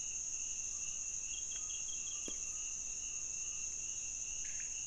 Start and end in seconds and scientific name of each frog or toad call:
4.2	4.8	Leptodactylus podicipinus